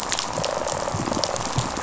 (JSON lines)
{"label": "biophony, rattle response", "recorder": "SoundTrap 500"}